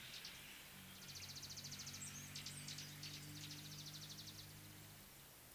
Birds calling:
Mariqua Sunbird (Cinnyris mariquensis)

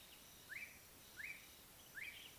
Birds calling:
Ring-necked Dove (Streptopelia capicola), Slate-colored Boubou (Laniarius funebris)

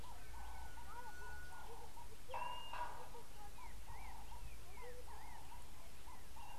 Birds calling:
Blue-naped Mousebird (Urocolius macrourus)

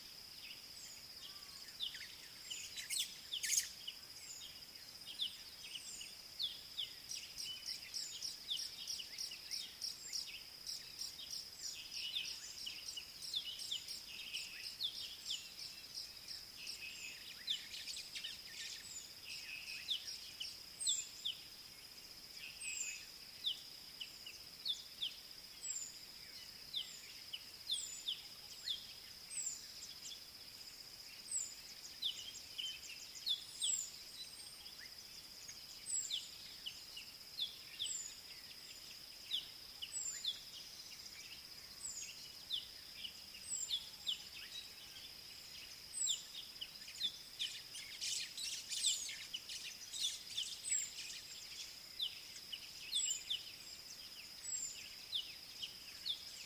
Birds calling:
White-browed Sparrow-Weaver (Plocepasser mahali), Scarlet-chested Sunbird (Chalcomitra senegalensis), Southern Black-Flycatcher (Melaenornis pammelaina)

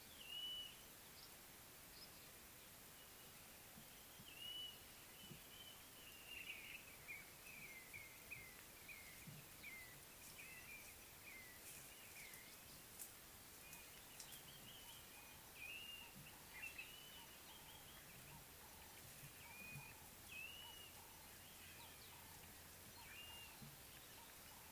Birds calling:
Blue-naped Mousebird (Urocolius macrourus)

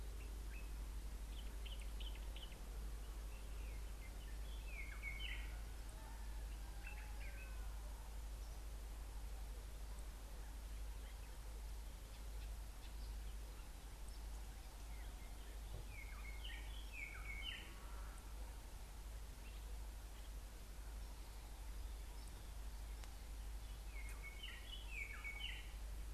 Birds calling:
White-browed Robin-Chat (Cossypha heuglini), Common Bulbul (Pycnonotus barbatus)

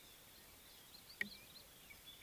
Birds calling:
White-browed Robin-Chat (Cossypha heuglini), Red-faced Crombec (Sylvietta whytii)

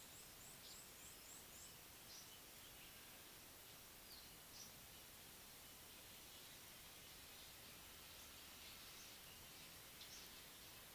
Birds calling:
Red-cheeked Cordonbleu (Uraeginthus bengalus)

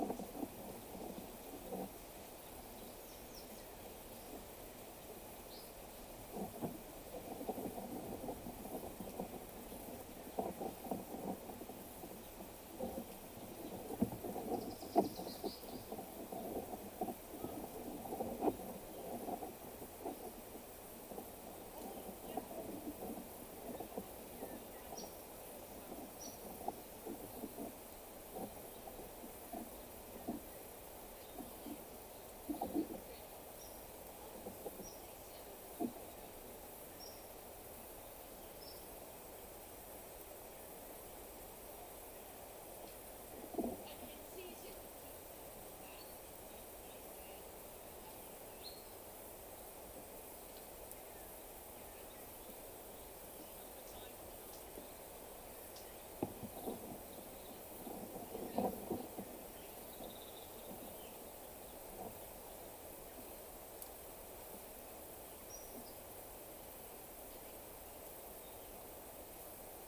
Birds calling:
Waller's Starling (Onychognathus walleri), Cinnamon-chested Bee-eater (Merops oreobates), African Emerald Cuckoo (Chrysococcyx cupreus)

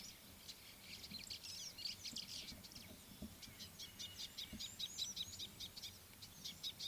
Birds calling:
White-browed Sparrow-Weaver (Plocepasser mahali), Scarlet-chested Sunbird (Chalcomitra senegalensis)

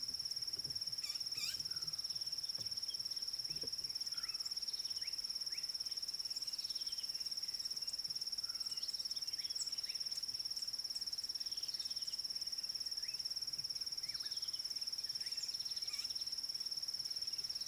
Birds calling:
Red-backed Scrub-Robin (Cercotrichas leucophrys), White-rumped Shrike (Eurocephalus ruppelli)

